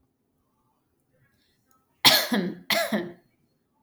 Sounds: Cough